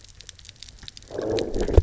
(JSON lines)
{"label": "biophony, low growl", "recorder": "SoundTrap 300"}